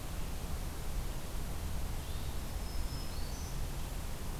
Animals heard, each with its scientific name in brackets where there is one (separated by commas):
Black-throated Green Warbler (Setophaga virens)